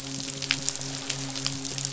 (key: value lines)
label: biophony, midshipman
recorder: SoundTrap 500